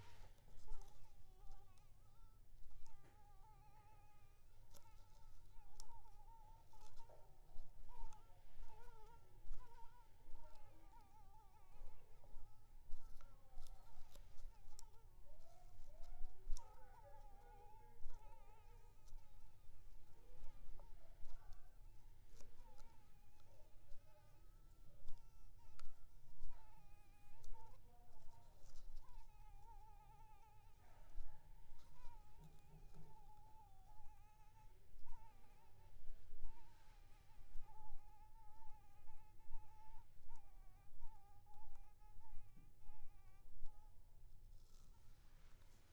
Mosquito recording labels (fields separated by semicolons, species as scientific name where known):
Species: Anopheles arabiensis; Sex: female; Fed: blood-fed; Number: one; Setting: cup